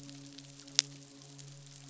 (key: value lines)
label: biophony, midshipman
recorder: SoundTrap 500